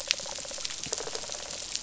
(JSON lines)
{"label": "biophony, rattle response", "recorder": "SoundTrap 500"}